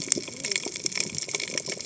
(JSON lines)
{"label": "biophony, cascading saw", "recorder": "HydroMoth"}